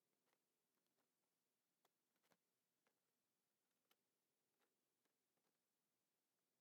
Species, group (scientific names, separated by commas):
Steropleurus andalusius, Orthoptera